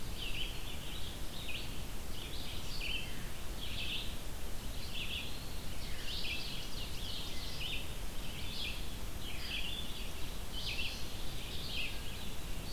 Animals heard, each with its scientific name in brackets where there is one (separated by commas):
Red-eyed Vireo (Vireo olivaceus), Ovenbird (Seiurus aurocapilla)